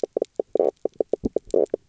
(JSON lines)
{"label": "biophony, knock croak", "recorder": "SoundTrap 300"}